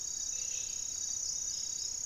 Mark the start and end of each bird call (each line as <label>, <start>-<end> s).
Amazonian Trogon (Trogon ramonianus), 0.0-2.1 s
Gray-fronted Dove (Leptotila rufaxilla), 0.0-2.1 s